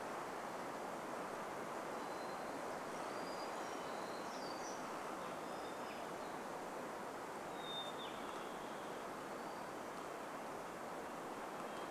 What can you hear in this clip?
Hermit Thrush song, Western Tanager song, warbler song, Hermit Thrush call